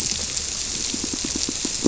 {"label": "biophony, squirrelfish (Holocentrus)", "recorder": "SoundTrap 300"}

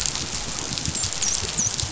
{"label": "biophony, dolphin", "recorder": "SoundTrap 500"}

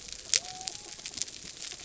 {"label": "biophony", "recorder": "SoundTrap 300"}
{"label": "anthrophony, mechanical", "recorder": "SoundTrap 300"}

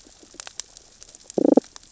{"label": "biophony, damselfish", "recorder": "SoundTrap 600 or HydroMoth"}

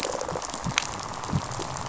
{"label": "biophony, rattle response", "recorder": "SoundTrap 500"}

